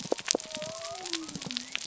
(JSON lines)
{"label": "biophony", "recorder": "SoundTrap 300"}